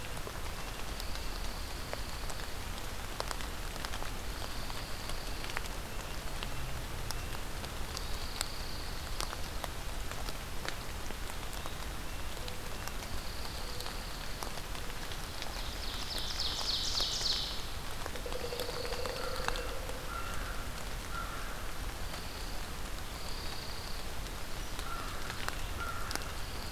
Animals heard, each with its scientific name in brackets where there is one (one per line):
Ovenbird (Seiurus aurocapilla)
American Crow (Corvus brachyrhynchos)
Red-breasted Nuthatch (Sitta canadensis)
Pileated Woodpecker (Dryocopus pileatus)
Pine Warbler (Setophaga pinus)